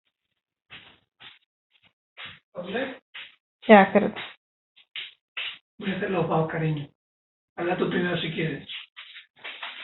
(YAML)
expert_labels:
- quality: no cough present
  dyspnea: false
  wheezing: false
  stridor: false
  choking: false
  congestion: false
  nothing: false
age: 42
gender: male
respiratory_condition: false
fever_muscle_pain: true
status: symptomatic